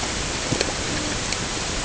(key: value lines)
label: ambient
recorder: HydroMoth